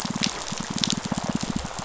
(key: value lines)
label: biophony, pulse
recorder: SoundTrap 500